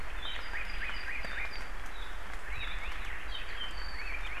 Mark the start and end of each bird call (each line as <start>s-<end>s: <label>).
0.2s-2.9s: Apapane (Himatione sanguinea)
2.4s-3.1s: Hawaii Elepaio (Chasiempis sandwichensis)
3.3s-4.1s: Apapane (Himatione sanguinea)
3.9s-4.4s: Hawaii Elepaio (Chasiempis sandwichensis)